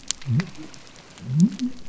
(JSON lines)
{"label": "biophony", "recorder": "SoundTrap 300"}